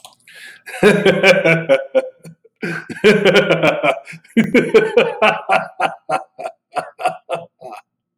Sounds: Laughter